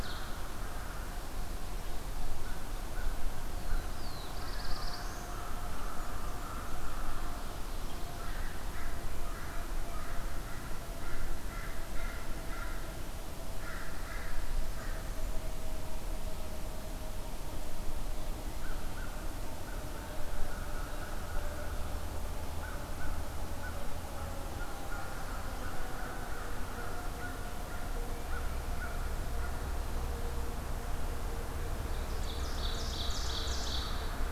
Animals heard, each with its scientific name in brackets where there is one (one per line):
Black-throated Blue Warbler (Setophaga caerulescens)
American Crow (Corvus brachyrhynchos)
Ovenbird (Seiurus aurocapilla)